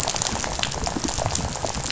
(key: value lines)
label: biophony, rattle
recorder: SoundTrap 500